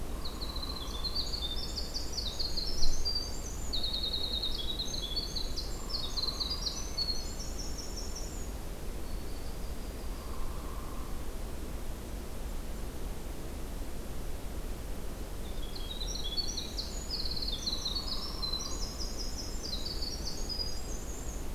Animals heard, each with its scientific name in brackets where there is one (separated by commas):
Hairy Woodpecker (Dryobates villosus), Winter Wren (Troglodytes hiemalis), Black-throated Green Warbler (Setophaga virens), Yellow-rumped Warbler (Setophaga coronata)